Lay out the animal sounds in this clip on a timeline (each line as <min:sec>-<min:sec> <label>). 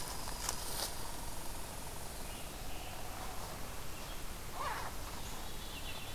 0:00.0-0:03.7 Red Squirrel (Tamiasciurus hudsonicus)
0:00.0-0:06.1 Red-eyed Vireo (Vireo olivaceus)
0:05.1-0:06.1 Black-capped Chickadee (Poecile atricapillus)